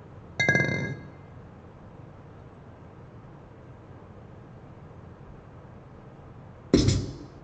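At 0.4 seconds, chinking can be heard. Later, at 6.7 seconds, writing is audible.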